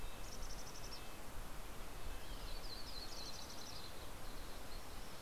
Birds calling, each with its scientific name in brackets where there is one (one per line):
Mountain Chickadee (Poecile gambeli)
Red-breasted Nuthatch (Sitta canadensis)
Yellow-rumped Warbler (Setophaga coronata)